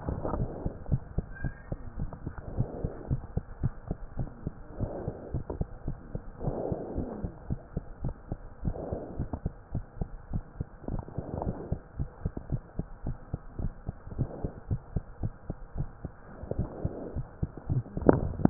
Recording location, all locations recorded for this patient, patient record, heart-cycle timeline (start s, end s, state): mitral valve (MV)
aortic valve (AV)+pulmonary valve (PV)+tricuspid valve (TV)+mitral valve (MV)
#Age: Child
#Sex: Female
#Height: 103.0 cm
#Weight: 18.1 kg
#Pregnancy status: False
#Murmur: Absent
#Murmur locations: nan
#Most audible location: nan
#Systolic murmur timing: nan
#Systolic murmur shape: nan
#Systolic murmur grading: nan
#Systolic murmur pitch: nan
#Systolic murmur quality: nan
#Diastolic murmur timing: nan
#Diastolic murmur shape: nan
#Diastolic murmur grading: nan
#Diastolic murmur pitch: nan
#Diastolic murmur quality: nan
#Outcome: Normal
#Campaign: 2015 screening campaign
0.00	0.69	unannotated
0.69	0.88	diastole
0.88	1.02	S1
1.02	1.12	systole
1.12	1.28	S2
1.28	1.42	diastole
1.42	1.54	S1
1.54	1.70	systole
1.70	1.80	S2
1.80	1.96	diastole
1.96	2.10	S1
2.10	2.24	systole
2.24	2.34	S2
2.34	2.54	diastole
2.54	2.70	S1
2.70	2.82	systole
2.82	2.92	S2
2.92	3.08	diastole
3.08	3.22	S1
3.22	3.36	systole
3.36	3.48	S2
3.48	3.62	diastole
3.62	3.74	S1
3.74	3.88	systole
3.88	3.98	S2
3.98	4.16	diastole
4.16	4.30	S1
4.30	4.46	systole
4.46	4.56	S2
4.56	4.78	diastole
4.78	4.90	S1
4.90	5.04	systole
5.04	5.14	S2
5.14	5.32	diastole
5.32	5.44	S1
5.44	5.56	systole
5.56	5.72	S2
5.72	5.86	diastole
5.86	5.98	S1
5.98	6.12	systole
6.12	6.22	S2
6.22	6.42	diastole
6.42	6.56	S1
6.56	6.68	systole
6.68	6.80	S2
6.80	6.96	diastole
6.96	7.10	S1
7.10	7.22	systole
7.22	7.32	S2
7.32	7.48	diastole
7.48	7.60	S1
7.60	7.74	systole
7.74	7.84	S2
7.84	8.02	diastole
8.02	8.14	S1
8.14	8.28	systole
8.28	8.40	S2
8.40	8.62	diastole
8.62	8.76	S1
8.76	8.88	systole
8.88	9.00	S2
9.00	9.18	diastole
9.18	9.32	S1
9.32	9.44	systole
9.44	9.54	S2
9.54	9.72	diastole
9.72	9.84	S1
9.84	9.98	systole
9.98	10.12	S2
10.12	10.28	diastole
10.28	10.44	S1
10.44	10.58	systole
10.58	10.68	S2
10.68	10.90	diastole
10.90	11.04	S1
11.04	11.16	systole
11.16	11.26	S2
11.26	11.42	diastole
11.42	11.56	S1
11.56	11.66	systole
11.66	11.82	S2
11.82	11.98	diastole
11.98	12.10	S1
12.10	12.24	systole
12.24	12.34	S2
12.34	12.50	diastole
12.50	12.62	S1
12.62	12.78	systole
12.78	12.88	S2
12.88	13.04	diastole
13.04	13.16	S1
13.16	13.32	systole
13.32	13.42	S2
13.42	13.58	diastole
13.58	13.74	S1
13.74	13.86	systole
13.86	13.96	S2
13.96	14.16	diastole
14.16	14.32	S1
14.32	14.42	systole
14.42	14.52	S2
14.52	14.70	diastole
14.70	14.84	S1
14.84	14.96	systole
14.96	15.08	S2
15.08	15.22	diastole
15.22	15.34	S1
15.34	15.48	systole
15.48	15.58	S2
15.58	15.76	diastole
15.76	15.90	S1
15.90	16.04	systole
16.04	16.14	S2
16.14	16.39	diastole
16.39	18.50	unannotated